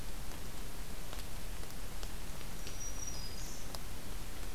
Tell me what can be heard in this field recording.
Black-throated Green Warbler